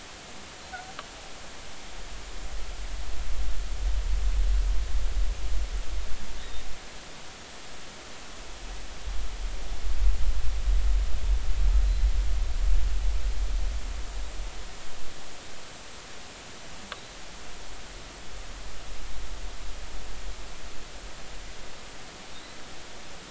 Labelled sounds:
6.4	6.7	humpback whale, 3.5 to 3.9 kHz

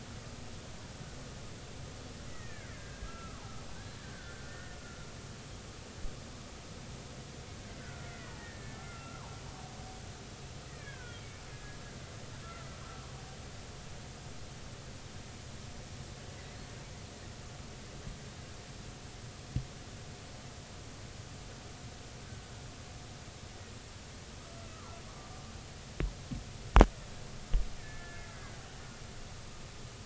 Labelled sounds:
2.3	3.5	killer whale, Bigg's (transient), 0.80 to 2.2 kHz
4.0	5.1	killer whale, Bigg's (transient), 1.3 to 1.9 kHz
7.8	9.3	killer whale, Bigg's (transient), 0.80 to 2.3 kHz
10.7	12.7	killer whale, Bigg's (transient), 1.2 to 2.6 kHz
24.7	25.3	killer whale, Bigg's (transient), 0.86 to 1.4 kHz
27.8	28.3	killer whale, Bigg's (transient), 1.3 to 2.3 kHz

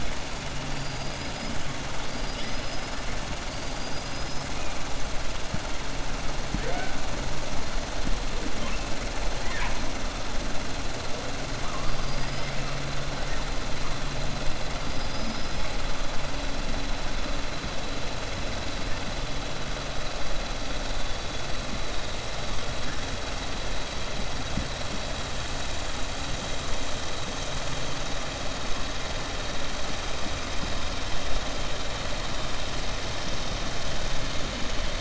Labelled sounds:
0.7	1.5	killer whale, 4.6 to 5.1 kHz
3.5	4.5	killer whale, 4.6 to 5.6 kHz
12.0	12.5	killer whale, 4.8 to 5.2 kHz
14.9	15.6	killer whale, 4.8 to 5.2 kHz

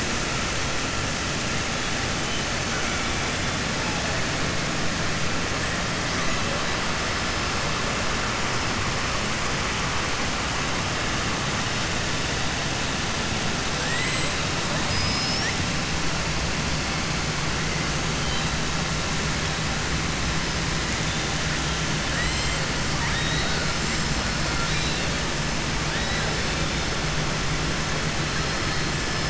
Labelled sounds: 13.7	14.3	killer whale, southern resident, 1.6 to 7.8 kHz
14.8	15.5	killer whale, southern resident, 4.1 to 5.7 kHz
22.0	22.5	killer whale, southern resident, 1.6 to 5.2 kHz
24.5	25.1	killer whale, southern resident, 1.4 to 5.3 kHz

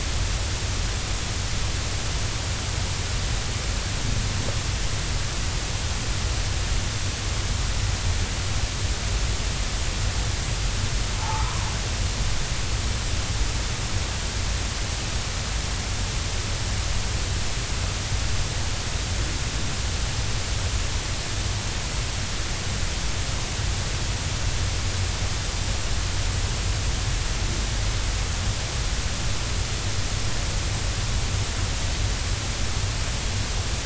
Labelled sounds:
11.2	11.6	humpback whale, 0.80 to 1.3 kHz

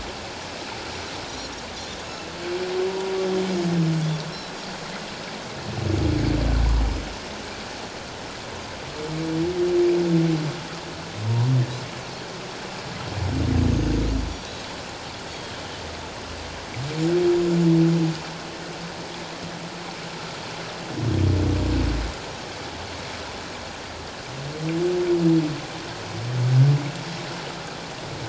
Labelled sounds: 1.3	2.3	Pacific white-sided dolphin, 2.6 to 5.9 kHz
2.9	3.1	humpback whale, 0.91 to 1.0 kHz
4.3	4.6	Pacific white-sided dolphin, 3.9 to 4.2 kHz
13.7	14.0	Pacific white-sided dolphin, 6.3 to 6.5 kHz

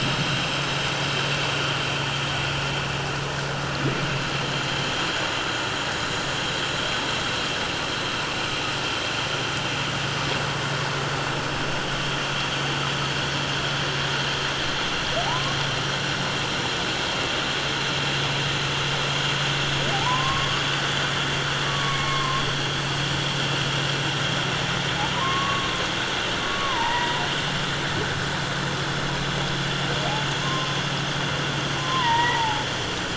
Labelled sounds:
15.2	15.6	humpback whale, 0.78 to 1.2 kHz
19.9	20.7	humpback whale, 0.78 to 4.7 kHz
21.7	22.4	humpback whale, 1.0 to 2.3 kHz
25.1	25.7	humpback whale, 0.91 to 1.2 kHz
26.4	27.2	humpback whale, 0.84 to 2.0 kHz
30.4	30.8	humpback whale, 0.97 to 1.1 kHz
31.8	32.7	humpback whale, 0.81 to 2.0 kHz

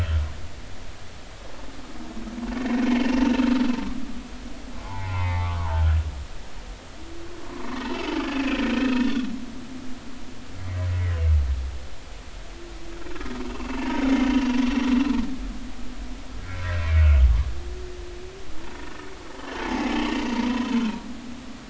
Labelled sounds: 2.6	2.8	humpback whale, 1.8 to 2.0 kHz
4.7	6.0	humpback whale, 0.80 to 2.7 kHz
7.8	8.6	humpback whale, 2.3 to 2.8 kHz
10.9	11.1	humpback whale, 1.9 to 2.3 kHz
13.5	14.6	humpback whale, 0.83 to 2.8 kHz
16.5	16.8	humpback whale, 1.5 to 1.8 kHz
19.4	19.9	humpback whale, 0.80 to 3.2 kHz
20.3	21.2	humpback whale, 0.90 to 3.1 kHz

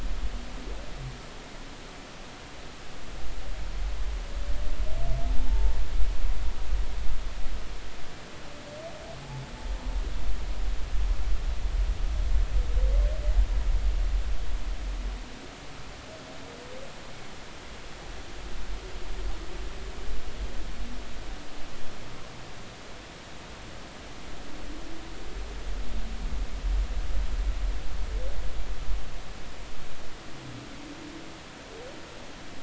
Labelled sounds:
5.5	5.7	humpback whale, 0.83 to 0.93 kHz

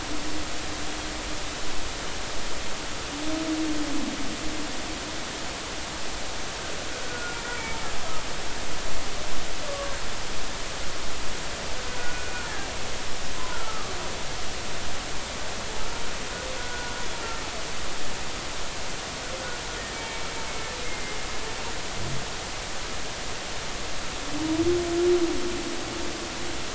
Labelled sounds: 7.0	7.4	humpback whale, 1.4 to 1.5 kHz
9.7	10.0	humpback whale, 0.99 to 1.2 kHz
12.0	12.7	humpback whale, 1.4 to 1.8 kHz
13.3	13.9	humpback whale, 0.90 to 1.5 kHz
16.6	16.9	humpback whale, 1.4 to 1.6 kHz
19.9	20.2	humpback whale, 2.2 to 2.3 kHz
20.8	21.2	humpback whale, 2.0 to 2.2 kHz

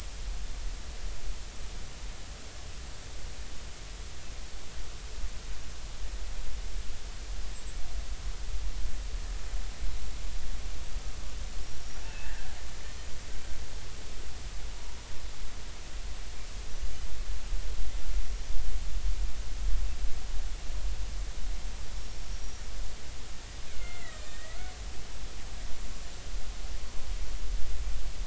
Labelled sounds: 11.8	12.4	killer whale, Bigg's (transient), 2.5 to 5.9 kHz
22.0	22.6	killer whale, Bigg's (transient), 5.4 to 5.8 kHz
23.8	24.6	killer whale, Bigg's (transient), 1.3 to 7.6 kHz

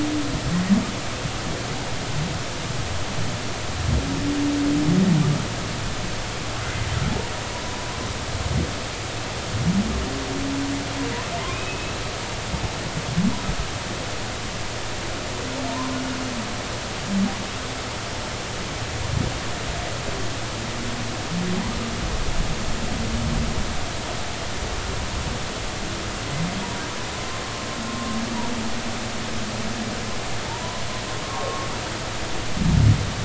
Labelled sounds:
6.6	6.9	humpback whale, 2.0 to 2.1 kHz
11.5	12.0	humpback whale, 2.3 to 2.7 kHz
15.7	16.0	humpback whale, 0.90 to 1.1 kHz
30.5	30.8	humpback whale, 0.86 to 1.1 kHz
32.2	32.7	humpback whale, 1.0 to 1.2 kHz

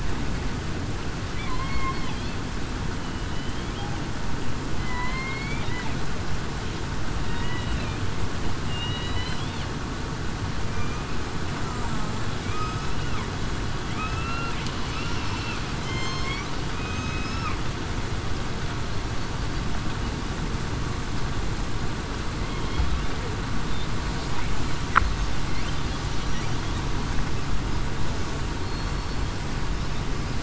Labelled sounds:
1.5	2.0	killer whale, southern resident, 0.96 to 2.2 kHz
4.8	5.6	killer whale, southern resident, 0.96 to 2.4 kHz
7.2	7.7	killer whale, southern resident, 1.8 to 2.0 kHz
8.6	9.4	killer whale, southern resident, 2.8 to 4.1 kHz
10.7	11.0	killer whale, southern resident, 2.3 to 2.5 kHz
12.4	12.8	killer whale, southern resident, 2.2 to 2.6 kHz
13.9	14.5	killer whale, southern resident, 1.3 to 2.8 kHz
14.9	15.3	killer whale, southern resident, 2.5 to 2.8 kHz
15.8	16.3	killer whale, southern resident, 2.0 to 4.3 kHz
16.7	17.5	killer whale, southern resident, 2.3 to 2.7 kHz
28.6	29.2	killer whale, southern resident, 4.3 to 4.5 kHz

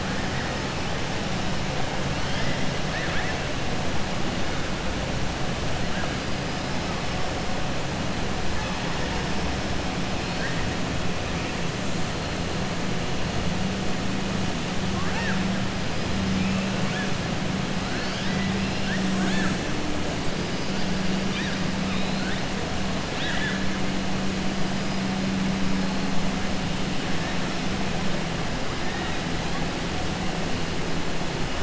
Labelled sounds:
2.8	3.4	killer whale, 0.86 to 3.5 kHz
14.9	15.4	killer whale, 0.79 to 3.7 kHz
23.1	23.6	killer whale, 1.4 to 4.4 kHz

